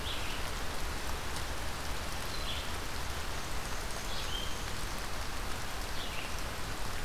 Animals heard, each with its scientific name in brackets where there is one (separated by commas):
Black-and-white Warbler (Mniotilta varia), Red-eyed Vireo (Vireo olivaceus)